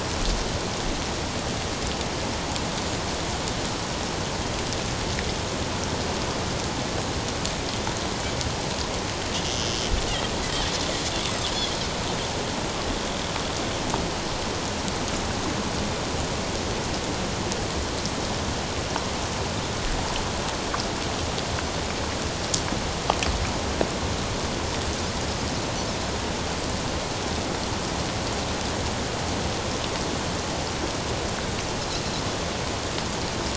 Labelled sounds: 11.2	11.5	Pacific white-sided dolphin, 7.4 to 7.8 kHz

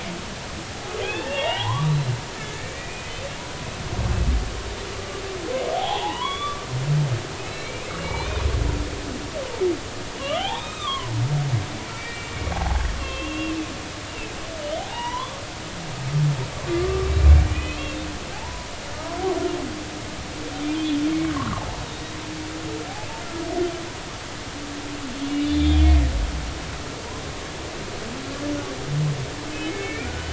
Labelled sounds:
0.6	3.1	humpback whale, 0.80 to 4.2 kHz
5.7	6.7	humpback whale, 0.80 to 3.6 kHz
7.4	8.5	humpback whale, 2.2 to 4.2 kHz
10.2	13.6	humpback whale, 0.80 to 3.9 kHz
14.8	15.3	humpback whale, 0.80 to 3.1 kHz
17.5	18.7	humpback whale, 0.80 to 2.8 kHz
20.6	21.0	humpback whale, 2.3 to 2.6 kHz
21.3	21.6	humpback whale, 0.96 to 1.5 kHz
25.2	26.1	humpback whale, 2.0 to 3.9 kHz
29.7	30.3	humpback whale, 1.4 to 2.5 kHz

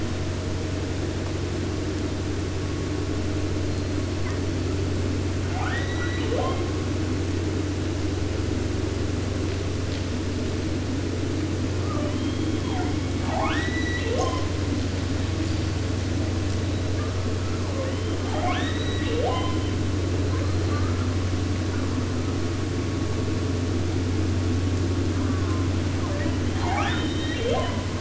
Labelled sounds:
3.6	4.5	killer whale, 0.65 to 4.9 kHz
5.4	6.7	killer whale, southern resident, J pod, call S02i, 0.50 to 6.3 kHz
11.7	13.6	killer whale, southern resident, J pod, call S44, 0.14 to 4.4 kHz
13.1	14.6	killer whale, southern resident, J pod, call S02i, 0.50 to 8.0 kHz
16.5	17.6	killer whale, 0.79 to 4.1 kHz
17.6	20.1	killer whale, southern resident, J pod, call S44 and call S02i, 0.44 to 8.0 kHz
20.2	21.2	killer whale, 0.66 to 4.5 kHz
25.1	25.8	killer whale, southern resident, J pod, call S04, 0.63 to 2.0 kHz
26.0	28.0	killer whale, southern resident, J pod, call S02i, 0.50 to 7.5 kHz

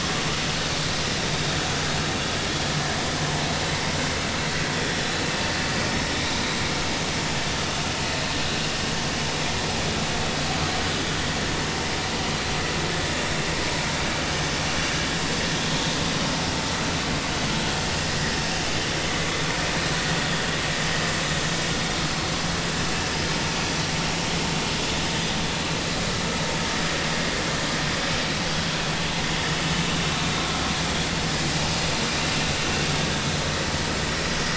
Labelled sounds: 4.7	5.0	vessel noise, 5.5 to 5.7 kHz

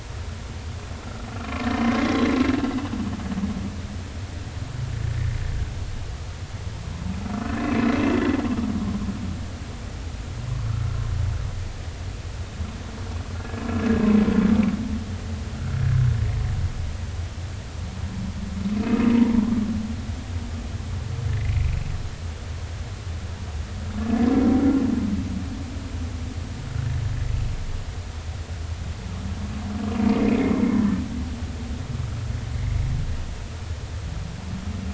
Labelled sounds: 2.0	2.3	humpback whale, 3.2 to 3.4 kHz
7.4	7.9	humpback whale, 2.5 to 2.7 kHz
18.8	19.5	humpback whale, 0.86 to 2.7 kHz
21.4	21.8	humpback whale, 2.2 to 2.7 kHz
30.7	31.0	humpback whale, 1.5 to 1.9 kHz

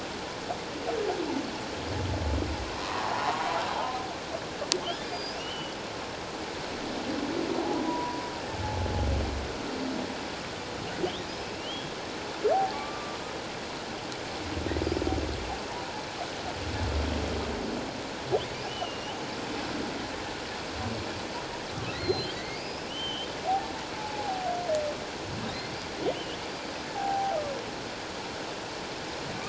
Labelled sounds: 2.7	3.4	humpback whale, 0.78 to 1.2 kHz
4.8	5.8	humpback whale, 2.5 to 5.2 kHz
7.8	8.2	humpback whale, 0.91 to 1.0 kHz
11.3	11.9	humpback whale, 2.7 to 5.2 kHz
12.5	13.2	humpback whale, 0.78 to 1.2 kHz
18.7	19.2	humpback whale, 2.7 to 3.1 kHz
21.9	23.3	humpback whale, 1.9 to 5.1 kHz
23.9	24.5	humpback whale, 0.78 to 0.94 kHz
26.9	27.4	humpback whale, 0.78 to 0.91 kHz

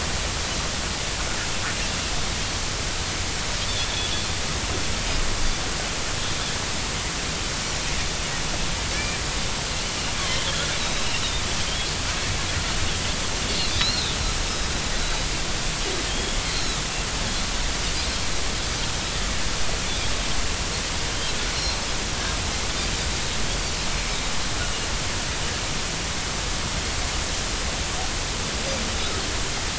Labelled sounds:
10.2	11.0	Pacific white-sided dolphin, 3.0 to 4.0 kHz
13.8	14.1	Pacific white-sided dolphin, 3.4 to 4.4 kHz
16.1	16.8	Pacific white-sided dolphin, 3.1 to 4.3 kHz
21.5	21.8	Pacific white-sided dolphin, 4.1 to 4.3 kHz
24.6	24.9	Pacific white-sided dolphin, 2.8 to 2.9 kHz

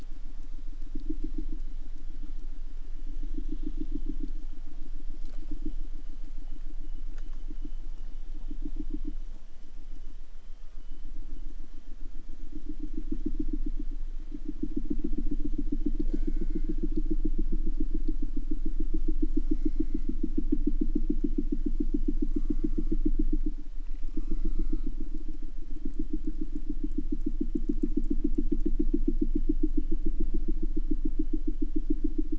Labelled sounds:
16.0	16.8	killer whale, southern resident, J pod, call S04, 0.63 to 8.0 kHz
19.2	20.1	killer whale, southern resident, J pod, call S04, 0.51 to 8.0 kHz
22.3	23.1	killer whale, southern resident, J pod, call S04, 0.44 to 8.0 kHz
23.8	25.0	killer whale, southern resident, J pod, call S04, 0.38 to 8.0 kHz

